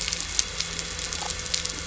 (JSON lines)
{"label": "biophony", "recorder": "SoundTrap 300"}